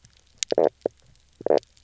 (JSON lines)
{"label": "biophony, knock croak", "recorder": "SoundTrap 300"}